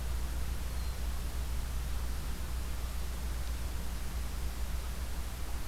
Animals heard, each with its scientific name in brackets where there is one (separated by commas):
Hermit Thrush (Catharus guttatus)